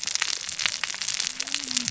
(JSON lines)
{"label": "biophony, cascading saw", "recorder": "SoundTrap 600 or HydroMoth"}